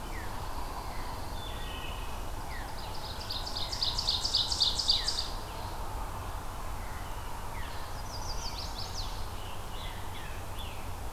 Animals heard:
Ovenbird (Seiurus aurocapilla), Scarlet Tanager (Piranga olivacea), Chestnut-sided Warbler (Setophaga pensylvanica), Pine Warbler (Setophaga pinus), Wood Thrush (Hylocichla mustelina)

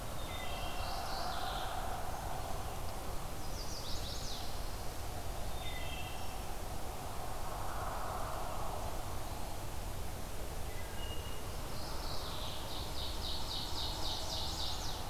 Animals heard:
Chestnut-sided Warbler (Setophaga pensylvanica), Mourning Warbler (Geothlypis philadelphia), Ovenbird (Seiurus aurocapilla), Wood Thrush (Hylocichla mustelina)

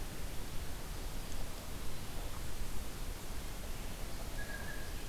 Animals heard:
Blue Jay (Cyanocitta cristata)

